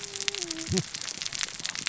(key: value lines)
label: biophony, cascading saw
recorder: SoundTrap 600 or HydroMoth